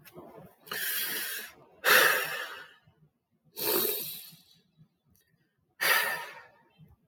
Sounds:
Sigh